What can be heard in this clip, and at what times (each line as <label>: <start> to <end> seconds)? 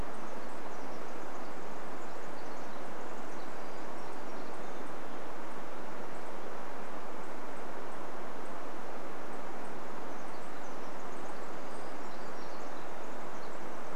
Pacific Wren song: 0 to 4 seconds
Townsend's Warbler call: 0 to 12 seconds
Townsend's Warbler song: 2 to 6 seconds
Pacific Wren song: 10 to 12 seconds
Townsend's Warbler song: 10 to 12 seconds
Brown Creeper call: 12 to 14 seconds